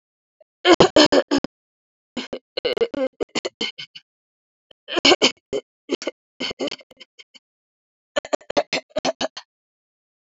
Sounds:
Throat clearing